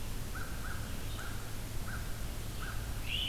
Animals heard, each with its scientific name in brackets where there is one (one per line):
American Crow (Corvus brachyrhynchos)
Red-eyed Vireo (Vireo olivaceus)